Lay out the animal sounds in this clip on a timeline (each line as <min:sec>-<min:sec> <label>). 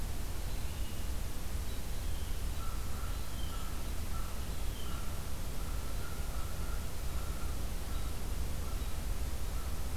0:00.0-0:01.8 American Robin (Turdus migratorius)
0:00.6-0:05.1 Blue Jay (Cyanocitta cristata)
0:02.4-0:10.0 American Crow (Corvus brachyrhynchos)
0:06.9-0:10.0 American Robin (Turdus migratorius)